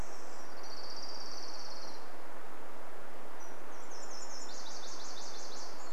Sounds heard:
Orange-crowned Warbler song, Nashville Warbler song

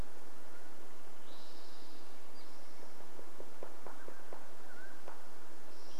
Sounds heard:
Spotted Towhee song, woodpecker drumming, unidentified sound, Mountain Quail call

